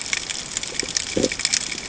{"label": "ambient", "recorder": "HydroMoth"}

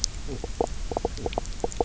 {"label": "biophony, knock croak", "recorder": "SoundTrap 300"}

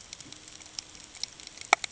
{"label": "ambient", "recorder": "HydroMoth"}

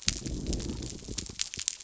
{"label": "biophony", "recorder": "SoundTrap 300"}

